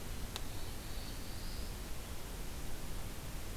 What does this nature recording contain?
Black-throated Blue Warbler